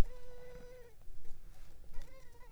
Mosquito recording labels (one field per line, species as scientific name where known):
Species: Culex pipiens complex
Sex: female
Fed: unfed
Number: one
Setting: cup